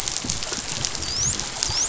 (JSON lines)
{"label": "biophony, dolphin", "recorder": "SoundTrap 500"}